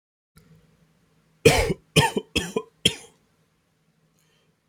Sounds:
Cough